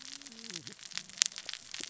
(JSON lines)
{"label": "biophony, cascading saw", "recorder": "SoundTrap 600 or HydroMoth"}